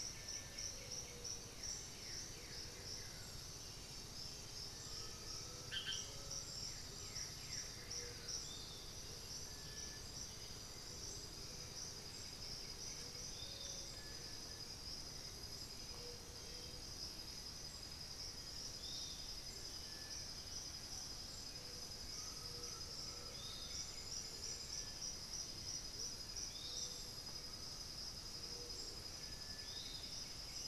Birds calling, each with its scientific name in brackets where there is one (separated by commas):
Amazonian Motmot (Momotus momota), Little Tinamou (Crypturellus soui), White-winged Becard (Pachyramphus polychopterus), Undulated Tinamou (Crypturellus undulatus), Piratic Flycatcher (Legatus leucophaius), Black-billed Thrush (Turdus ignobilis), Blue-gray Saltator (Saltator coerulescens)